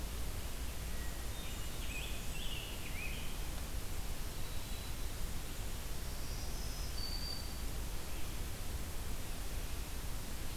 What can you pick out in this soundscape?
Hermit Thrush, Blackburnian Warbler, Scarlet Tanager, Black-throated Green Warbler